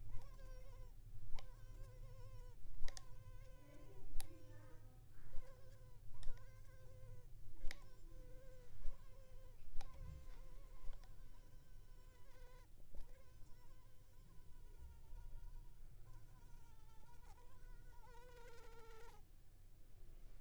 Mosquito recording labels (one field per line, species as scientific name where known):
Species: Culex pipiens complex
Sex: female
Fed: unfed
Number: one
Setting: cup